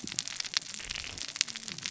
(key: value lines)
label: biophony, cascading saw
recorder: SoundTrap 600 or HydroMoth